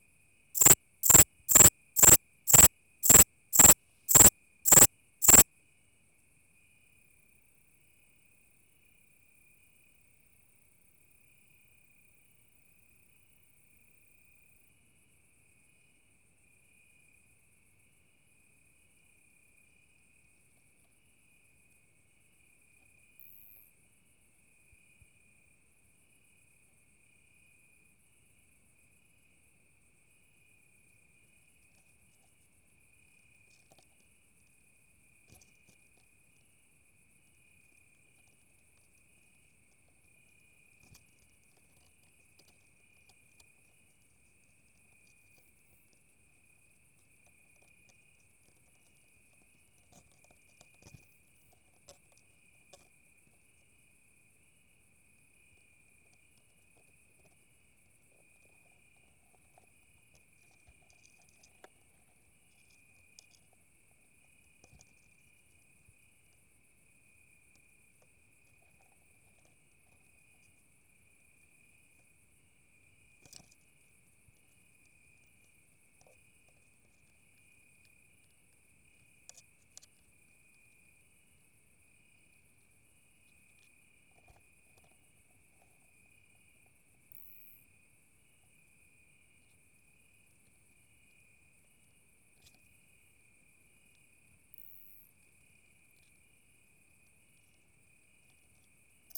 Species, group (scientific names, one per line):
Pholidoptera aptera
Orthoptera